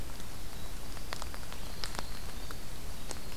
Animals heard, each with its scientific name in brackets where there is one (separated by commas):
Winter Wren (Troglodytes hiemalis)